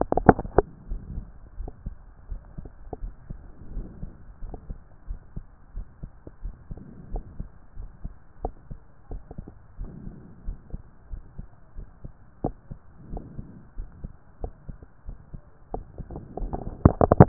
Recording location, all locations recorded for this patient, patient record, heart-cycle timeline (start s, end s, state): aortic valve (AV)
aortic valve (AV)+pulmonary valve (PV)+tricuspid valve (TV)+mitral valve (MV)+mitral valve (MV)
#Age: nan
#Sex: Female
#Height: nan
#Weight: nan
#Pregnancy status: True
#Murmur: Absent
#Murmur locations: nan
#Most audible location: nan
#Systolic murmur timing: nan
#Systolic murmur shape: nan
#Systolic murmur grading: nan
#Systolic murmur pitch: nan
#Systolic murmur quality: nan
#Diastolic murmur timing: nan
#Diastolic murmur shape: nan
#Diastolic murmur grading: nan
#Diastolic murmur pitch: nan
#Diastolic murmur quality: nan
#Outcome: Normal
#Campaign: 2014 screening campaign
0.00	0.38	S1
0.38	0.56	systole
0.56	0.66	S2
0.66	0.88	diastole
0.88	1.02	S1
1.02	1.10	systole
1.10	1.26	S2
1.26	1.58	diastole
1.58	1.72	S1
1.72	1.86	systole
1.86	1.96	S2
1.96	2.30	diastole
2.30	2.40	S1
2.40	2.56	systole
2.56	2.66	S2
2.66	3.02	diastole
3.02	3.14	S1
3.14	3.30	systole
3.30	3.40	S2
3.40	3.72	diastole
3.72	3.88	S1
3.88	4.02	systole
4.02	4.12	S2
4.12	4.44	diastole
4.44	4.56	S1
4.56	4.68	systole
4.68	4.78	S2
4.78	5.08	diastole
5.08	5.18	S1
5.18	5.36	systole
5.36	5.44	S2
5.44	5.76	diastole
5.76	5.86	S1
5.86	6.02	systole
6.02	6.10	S2
6.10	6.44	diastole
6.44	6.54	S1
6.54	6.70	systole
6.70	6.78	S2
6.78	7.10	diastole
7.10	7.24	S1
7.24	7.38	systole
7.38	7.48	S2
7.48	7.78	diastole
7.78	7.88	S1
7.88	8.04	systole
8.04	8.12	S2
8.12	8.42	diastole
8.42	8.52	S1
8.52	8.70	systole
8.70	8.78	S2
8.78	9.12	diastole
9.12	9.22	S1
9.22	9.38	systole
9.38	9.46	S2
9.46	9.80	diastole
9.80	9.92	S1
9.92	10.04	systole
10.04	10.16	S2
10.16	10.46	diastole
10.46	10.58	S1
10.58	10.72	systole
10.72	10.80	S2
10.80	11.12	diastole
11.12	11.22	S1
11.22	11.38	systole
11.38	11.46	S2
11.46	11.78	diastole
11.78	11.86	S1
11.86	12.04	systole
12.04	12.10	S2
12.10	12.44	diastole
12.44	12.54	S1
12.54	12.72	systole
12.72	12.78	S2
12.78	13.10	diastole
13.10	13.22	S1
13.22	13.36	systole
13.36	13.46	S2
13.46	13.78	diastole
13.78	13.88	S1
13.88	14.02	systole
14.02	14.10	S2
14.10	14.42	diastole
14.42	14.52	S1
14.52	14.68	systole
14.68	14.76	S2
14.76	15.08	diastole
15.08	15.16	S1
15.16	15.34	systole
15.34	15.40	S2
15.40	15.74	diastole
15.74	15.84	S1
15.84	15.98	systole
15.98	16.08	S2
16.08	16.38	diastole
16.38	16.62	S1
16.62	16.88	systole
16.88	17.28	S2